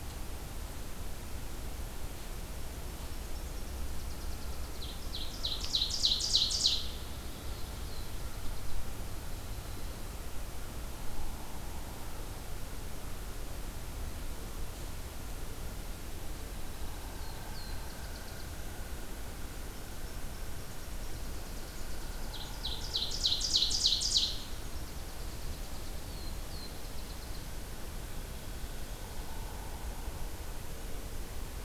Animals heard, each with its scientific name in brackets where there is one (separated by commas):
Ovenbird (Seiurus aurocapilla), Nashville Warbler (Leiothlypis ruficapilla), Black-throated Blue Warbler (Setophaga caerulescens)